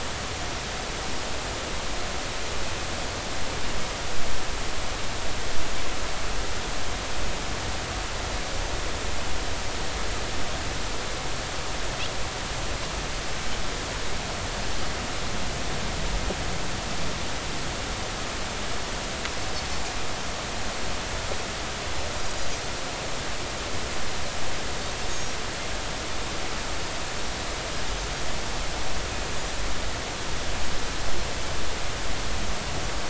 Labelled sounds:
25.1	25.4	Pacific white-sided dolphin, 6.4 to 6.7 kHz

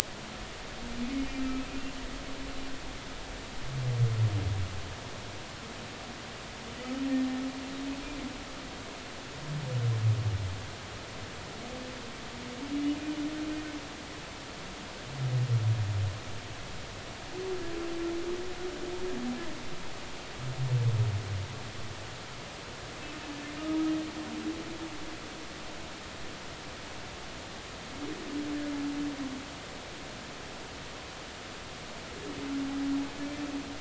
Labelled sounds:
12.7	13.0	humpback whale, 2.8 to 3.1 kHz

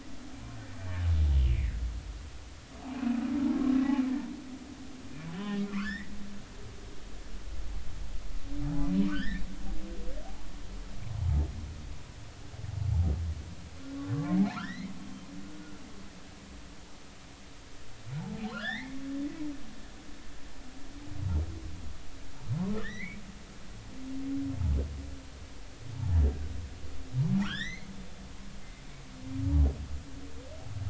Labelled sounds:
1.4	1.7	humpback whale, 1.8 to 3.2 kHz
2.9	3.2	humpback whale, 2.3 to 2.6 kHz
5.3	6.2	humpback whale, 0.99 to 5.5 kHz
9.0	9.4	humpback whale, 1.1 to 4.1 kHz
11.2	11.5	humpback whale, 0.83 to 0.93 kHz
14.3	14.9	humpback whale, 1.2 to 4.3 kHz
18.3	19.0	humpback whale, 1.2 to 4.3 kHz
22.8	23.2	humpback whale, 1.5 to 4.2 kHz
27.4	27.9	humpback whale, 1.1 to 6.3 kHz

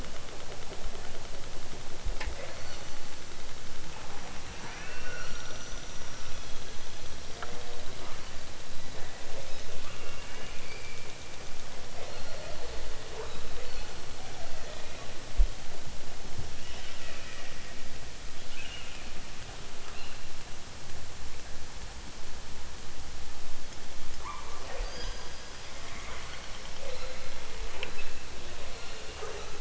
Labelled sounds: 2.2	3.0	killer whale, southern Alaska resident, 0.28 to 8.0 kHz
4.6	5.4	killer whale, southern Alaska resident, 0.55 to 3.4 kHz
6.3	7.3	killer whale, southern Alaska resident, 2.6 to 4.7 kHz
9.3	11.4	killer whale, southern Alaska resident, 0.88 to 6.4 kHz
12.0	12.8	killer whale, southern Alaska resident, 0.88 to 4.7 kHz
13.1	13.9	killer whale, southern Alaska resident, 0.28 to 4.8 kHz
14.2	15.1	killer whale, southern Alaska resident, 0.88 to 4.8 kHz
16.5	17.7	killer whale, southern Alaska resident, 1.1 to 4.3 kHz
18.4	19.2	killer whale, southern Alaska resident, 0.97 to 4.0 kHz
19.8	20.2	killer whale, southern Alaska resident, 0.69 to 4.7 kHz
24.2	25.4	killer whale, southern Alaska resident, 0.37 to 7.1 kHz
25.8	27.4	killer whale, southern Alaska resident, 0.23 to 5.0 kHz
27.7	28.2	killer whale, southern Alaska resident, 0.60 to 4.4 kHz
28.6	29.3	killer whale, southern Alaska resident, 0.55 to 4.7 kHz

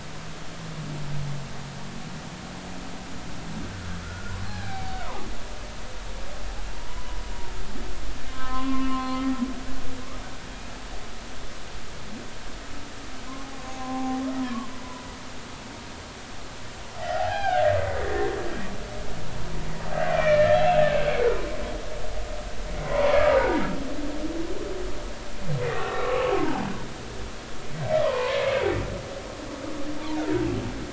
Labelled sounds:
3.7	5.3	humpback whale, 0.80 to 2.4 kHz
6.8	7.2	humpback whale, 0.90 to 1.1 kHz
8.3	9.2	humpback whale, 0.96 to 3.2 kHz
13.7	14.2	humpback whale, 0.80 to 1.1 kHz
17.0	17.7	humpback whale, 0.80 to 2.6 kHz
20.1	20.9	humpback whale, 1.7 to 3.4 kHz
22.8	23.2	humpback whale, 0.90 to 1.2 kHz
25.6	26.6	humpback whale, 0.80 to 2.1 kHz
28.0	28.8	humpback whale, 0.86 to 2.3 kHz

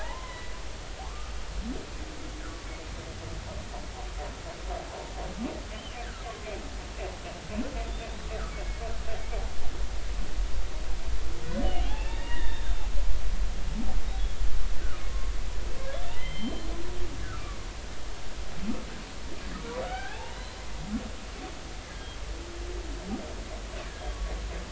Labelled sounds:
0.2	0.5	humpback whale, 1.9 to 2.1 kHz
1.0	1.4	humpback whale, 0.80 to 1.5 kHz
5.7	6.0	humpback whale, 2.7 to 3.2 kHz
8.5	8.8	humpback whale, 2.1 to 2.3 kHz
11.6	12.8	humpback whale, 0.80 to 3.8 kHz
15.1	15.3	humpback whale, 1.0 to 1.2 kHz
16.1	16.7	humpback whale, 1.9 to 3.2 kHz
17.2	17.6	humpback whale, 1.1 to 1.8 kHz
19.8	20.6	humpback whale, 0.80 to 4.1 kHz

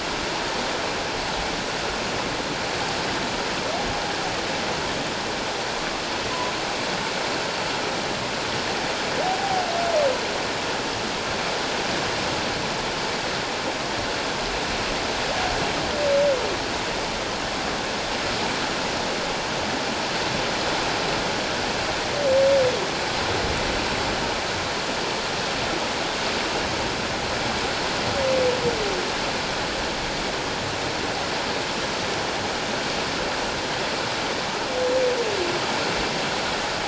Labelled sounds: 9.2	9.6	humpback whale, 0.78 to 0.84 kHz

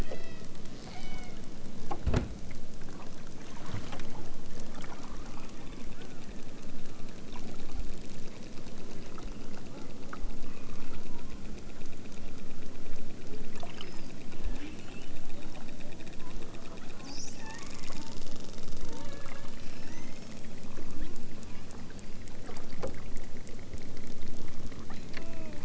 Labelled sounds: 0.0	0.5	killer whale, southern Alaska resident, 0.78 to 7.0 kHz
0.8	1.4	killer whale, southern Alaska resident, 0.88 to 6.2 kHz
17.3	18.0	killer whale, southern Alaska resident, 0.60 to 4.0 kHz
18.8	20.6	killer whale, southern Alaska resident, 0.64 to 8.0 kHz
24.7	25.6	killer whale, southern Alaska resident, 0.46 to 4.3 kHz

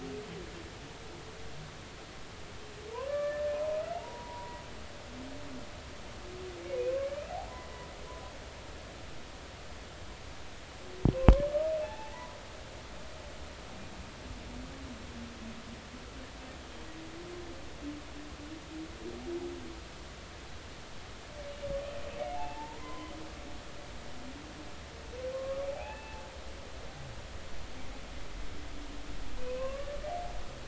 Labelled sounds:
3.1	3.4	humpback whale, 1.1 to 2.4 kHz
3.9	4.6	humpback whale, 0.80 to 1.0 kHz
11.8	12.4	humpback whale, 0.80 to 1.1 kHz
22.3	23.1	humpback whale, 0.80 to 1.1 kHz
25.3	26.2	humpback whale, 0.80 to 2.7 kHz
29.4	29.9	humpback whale, 0.99 to 2.7 kHz

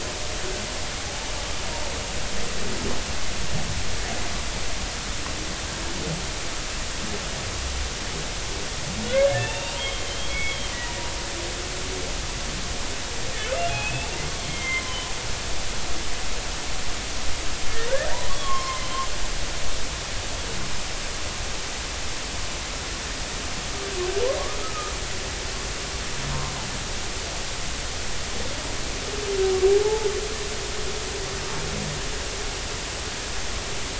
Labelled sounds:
9.4	10.7	humpback whale, 0.83 to 3.7 kHz
13.7	15.0	humpback whale, 0.96 to 3.3 kHz
18.3	18.8	humpback whale, 0.99 to 3.4 kHz
24.6	24.9	humpback whale, 1.2 to 1.3 kHz
29.8	30.1	humpback whale, 0.80 to 0.93 kHz

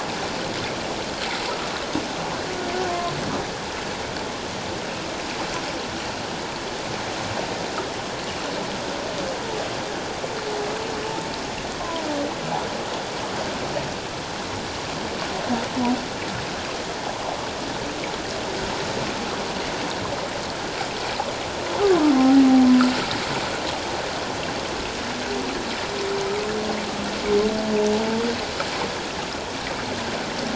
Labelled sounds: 2.9	3.1	humpback whale, 0.97 to 1.1 kHz
11.8	12.1	humpback whale, 0.94 to 1.1 kHz

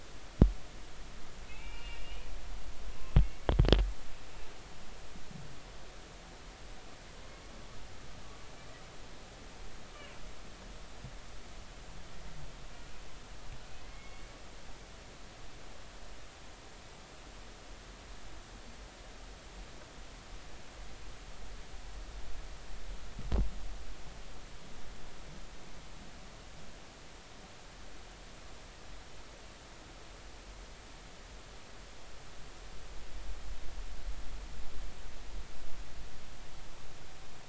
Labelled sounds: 1.5	2.3	humpback whale, 2.1 to 3.0 kHz
3.2	3.5	humpback whale, 2.1 to 2.3 kHz
9.9	10.2	humpback whale, 2.6 to 3.0 kHz
13.8	14.3	humpback whale, 2.0 to 2.3 kHz

